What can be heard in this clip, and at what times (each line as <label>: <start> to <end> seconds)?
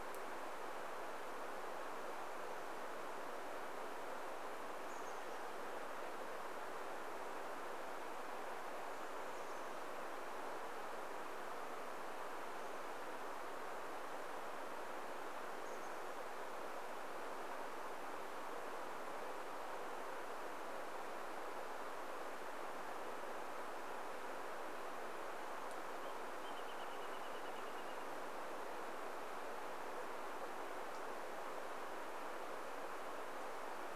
Chestnut-backed Chickadee call: 4 to 6 seconds
Chestnut-backed Chickadee call: 8 to 10 seconds
Chestnut-backed Chickadee call: 12 to 16 seconds
Wrentit song: 26 to 28 seconds